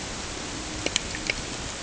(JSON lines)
{"label": "ambient", "recorder": "HydroMoth"}